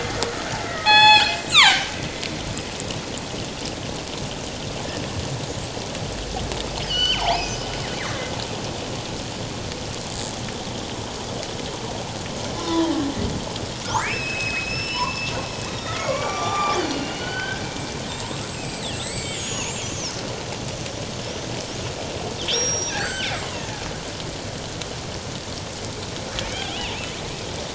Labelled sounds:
0.6	1.9	killer whale, northern resident, G clan, 0.78 to 7.8 kHz
6.8	7.6	killer whale, northern resident, G clan, 1.4 to 5.3 kHz
12.6	12.9	humpback whale, 0.88 to 1.1 kHz
13.9	17.6	killer whale, northern resident, G clan, 0.78 to 7.9 kHz
18.1	19.9	killer whale, northern resident, G clan, 1.9 to 8.0 kHz
22.4	23.8	killer whale, northern resident, G clan, 1.3 to 8.0 kHz

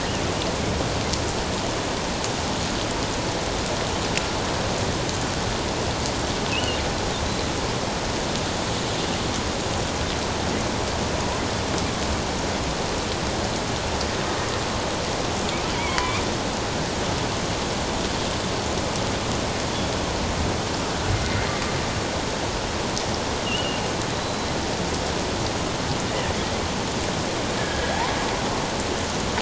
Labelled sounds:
6.5	6.8	killer whale, offshore, 2.5 to 3.1 kHz
15.8	16.1	killer whale, offshore, 0.91 to 1.1 kHz
21.1	21.5	killer whale, offshore, 2.0 to 2.2 kHz
23.4	23.8	killer whale, offshore, 2.6 to 3.0 kHz
24.2	24.5	killer whale, offshore, 3.9 to 4.1 kHz
27.6	28.0	killer whale, offshore, 1.6 to 1.8 kHz

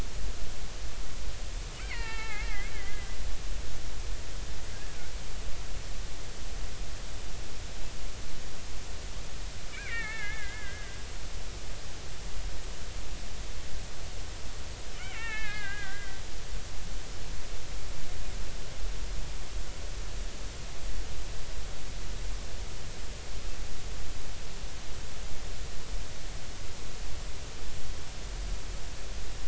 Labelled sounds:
1.8	3.1	killer whale, Bigg's (transient), 0.80 to 4.1 kHz
9.7	11.0	killer whale, Bigg's (transient), 1.2 to 2.8 kHz
15.0	16.2	killer whale, Bigg's (transient), 0.80 to 4.0 kHz

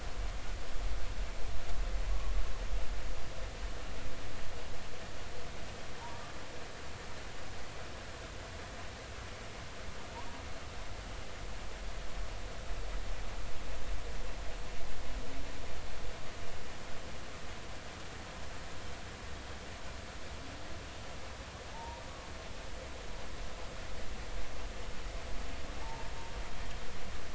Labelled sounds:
2.0	2.3	humpback whale, 0.93 to 1.2 kHz
21.7	22.0	humpback whale, 0.83 to 0.99 kHz
25.8	26.1	humpback whale, 0.80 to 0.96 kHz

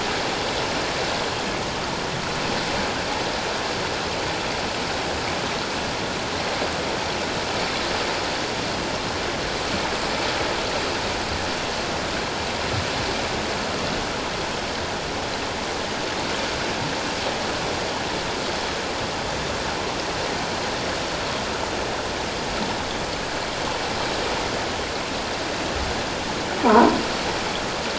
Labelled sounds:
26.6	27.0	croaking sound likely from a nearby submerged object, 0.78 to 1.1 kHz

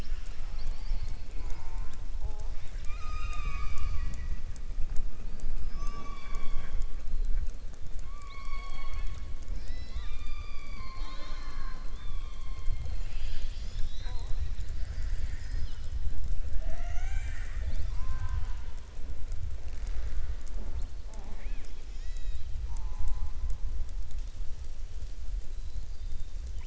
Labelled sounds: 11.9	12.8	killer whale, southern resident, 2.4 to 3.6 kHz

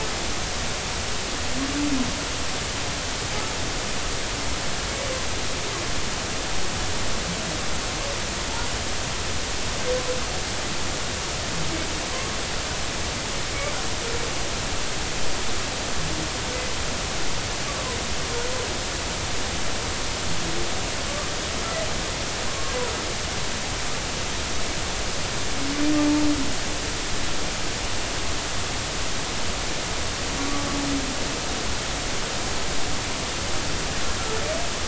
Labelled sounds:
22.5	22.7	humpback whale, 1.0 to 1.2 kHz
26.0	26.3	humpback whale, 0.83 to 0.96 kHz

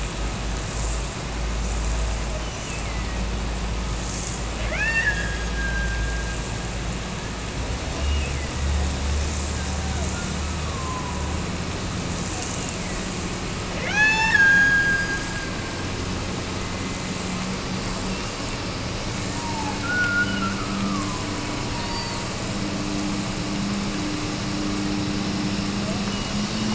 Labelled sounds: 2.2	3.2	killer whale, Bigg's (transient), Gulf of Alaska transient, 1.8 to 6.1 kHz
4.6	6.5	killer whale, Bigg's (transient), Gulf of Alaska transient, 0.55 to 6.6 kHz
7.9	8.8	killer whale, Bigg's (transient), Gulf of Alaska transient, 1.8 to 3.0 kHz
10.1	11.5	killer whale, Bigg's (transient), Gulf of Alaska transient, 0.75 to 1.4 kHz
13.7	15.7	killer whale, Bigg's (transient), Gulf of Alaska transient, 0.50 to 8.0 kHz
19.3	21.3	killer whale, Bigg's (transient), Gulf of Alaska transient, 0.61 to 1.6 kHz

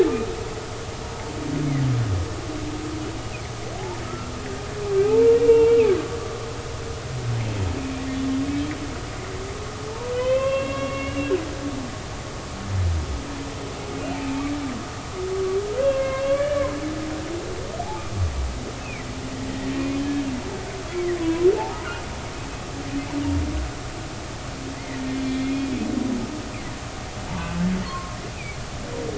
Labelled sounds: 4.0	4.3	humpback whale, 1.2 to 1.4 kHz
5.0	5.9	humpback whale, 0.80 to 2.9 kHz
10.1	11.3	humpback whale, 0.96 to 3.4 kHz
15.8	16.7	humpback whale, 0.99 to 3.8 kHz
17.8	18.0	humpback whale, 0.80 to 0.93 kHz
18.8	19.1	humpback whale, 1.9 to 2.7 kHz
21.2	21.8	humpback whale, 0.80 to 1.1 kHz
24.7	25.5	humpback whale, 1.8 to 3.5 kHz
27.3	28.6	humpback whale, 0.86 to 2.7 kHz

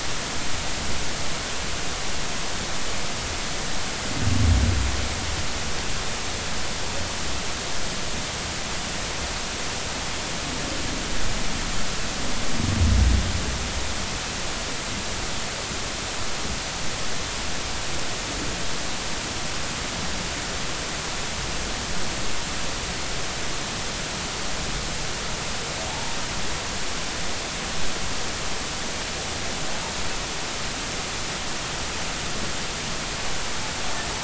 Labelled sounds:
25.9	26.2	humpback whale, 0.80 to 0.96 kHz

